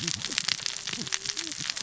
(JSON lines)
{"label": "biophony, cascading saw", "recorder": "SoundTrap 600 or HydroMoth"}